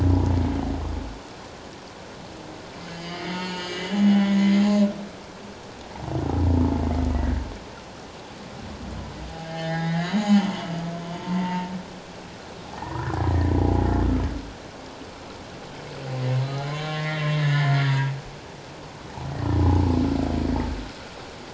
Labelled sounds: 3.0	4.6	humpback whale, 0.78 to 6.6 kHz
7.1	7.4	humpback whale, 1.8 to 2.0 kHz
9.5	10.7	humpback whale, 0.78 to 7.1 kHz
11.1	11.7	humpback whale, 0.84 to 0.97 kHz
12.8	13.9	humpback whale, 0.78 to 2.0 kHz
16.7	18.2	humpback whale, 0.91 to 3.1 kHz
19.7	19.9	humpback whale, 0.81 to 0.97 kHz

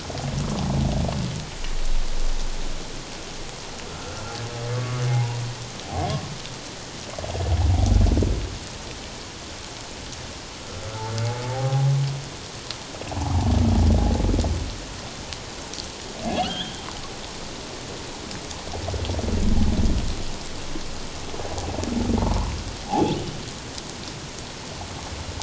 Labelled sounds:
4.0	6.1	humpback whale, 0.78 to 1.6 kHz
11.5	11.9	humpback whale, 0.78 to 0.84 kHz
16.3	16.8	humpback whale, 1.2 to 3.6 kHz
22.9	23.2	humpback whale, 0.78 to 0.94 kHz

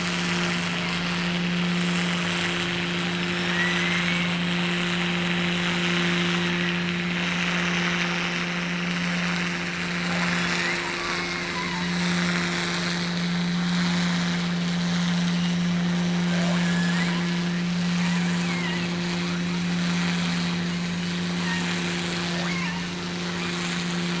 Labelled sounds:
3.1	4.3	killer whale, offshore, 1.6 to 6.2 kHz
10.0	10.7	killer whale, offshore, 3.3 to 5.2 kHz
11.1	12.2	killer whale, offshore, 0.68 to 5.7 kHz
16.3	17.2	killer whale, offshore, 0.45 to 5.3 kHz
17.9	19.0	killer whale, offshore, 0.68 to 3.2 kHz
21.3	21.7	killer whale, offshore, 0.80 to 3.0 kHz
22.2	23.0	killer whale, offshore, 0.50 to 3.0 kHz

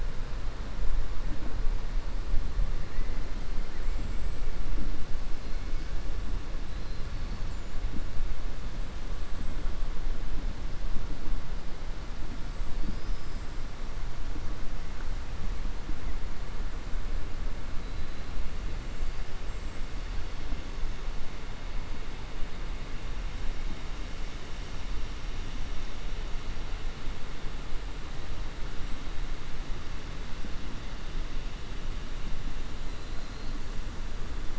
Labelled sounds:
12.8	13.4	killer whale, southern resident, 4.5 to 6.1 kHz

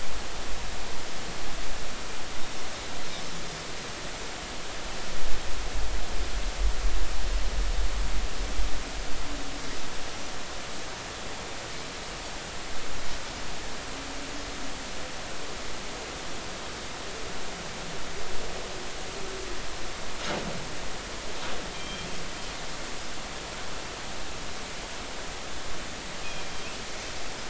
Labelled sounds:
21.7	22.1	Pacific white-sided dolphin, 3.1 to 3.2 kHz
27.2	27.4	Pacific white-sided dolphin, 2.4 to 2.6 kHz

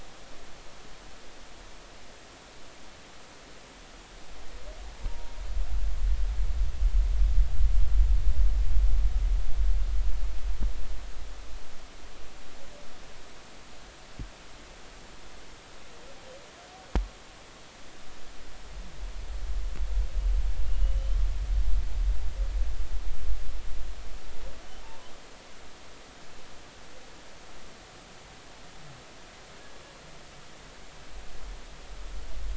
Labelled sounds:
5.1	5.3	humpback whale, 0.90 to 0.99 kHz
24.8	25.1	humpback whale, 0.86 to 1.1 kHz

